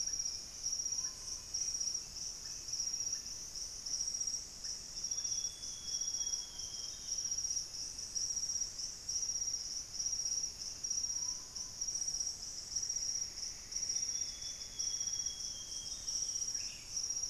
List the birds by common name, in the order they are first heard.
Russet-backed Oropendola, unidentified bird, Screaming Piha, Amazonian Grosbeak